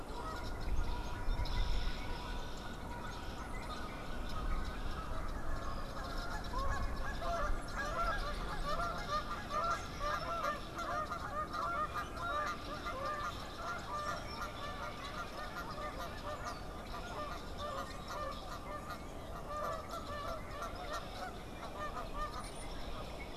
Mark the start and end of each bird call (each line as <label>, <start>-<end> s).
Canada Goose (Branta canadensis), 0.0-23.0 s
Red-winged Blackbird (Agelaius phoeniceus), 0.0-23.3 s
Brown-headed Cowbird (Molothrus ater), 22.2-22.8 s